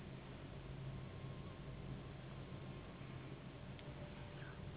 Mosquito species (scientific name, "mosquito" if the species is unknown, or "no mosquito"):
Anopheles gambiae s.s.